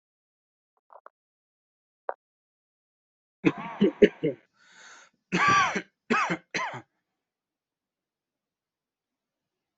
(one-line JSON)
{"expert_labels": [{"quality": "good", "cough_type": "dry", "dyspnea": false, "wheezing": false, "stridor": false, "choking": false, "congestion": false, "nothing": true, "diagnosis": "upper respiratory tract infection", "severity": "mild"}], "age": 18, "gender": "female", "respiratory_condition": false, "fever_muscle_pain": false, "status": "healthy"}